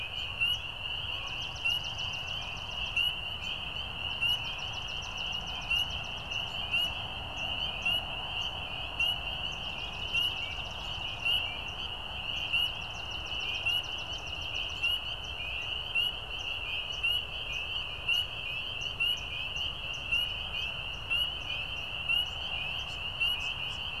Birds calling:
Swamp Sparrow (Melospiza georgiana)
unidentified bird
American Robin (Turdus migratorius)

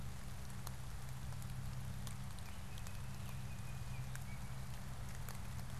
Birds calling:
Baltimore Oriole (Icterus galbula)

